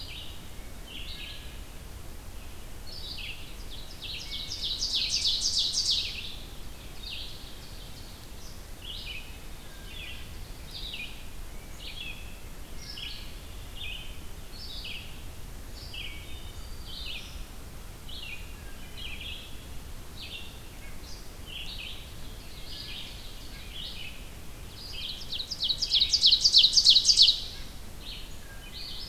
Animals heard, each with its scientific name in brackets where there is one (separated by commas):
Wood Thrush (Hylocichla mustelina), Black-throated Green Warbler (Setophaga virens), Tufted Titmouse (Baeolophus bicolor), Red-eyed Vireo (Vireo olivaceus), Ovenbird (Seiurus aurocapilla)